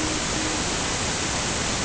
{"label": "ambient", "recorder": "HydroMoth"}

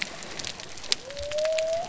{"label": "biophony", "recorder": "SoundTrap 300"}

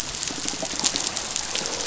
{"label": "biophony, croak", "recorder": "SoundTrap 500"}
{"label": "biophony", "recorder": "SoundTrap 500"}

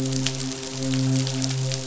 {"label": "biophony, midshipman", "recorder": "SoundTrap 500"}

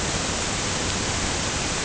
{"label": "ambient", "recorder": "HydroMoth"}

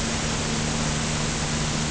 {"label": "anthrophony, boat engine", "recorder": "HydroMoth"}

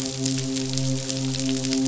{"label": "biophony, midshipman", "recorder": "SoundTrap 500"}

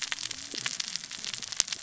{"label": "biophony, cascading saw", "recorder": "SoundTrap 600 or HydroMoth"}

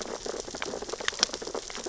{"label": "biophony, sea urchins (Echinidae)", "recorder": "SoundTrap 600 or HydroMoth"}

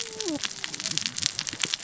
{"label": "biophony, cascading saw", "recorder": "SoundTrap 600 or HydroMoth"}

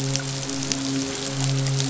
{"label": "biophony, midshipman", "recorder": "SoundTrap 500"}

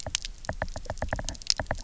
{"label": "biophony, knock", "recorder": "SoundTrap 300"}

